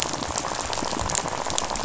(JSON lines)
{"label": "biophony, rattle", "recorder": "SoundTrap 500"}